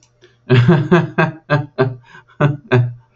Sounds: Laughter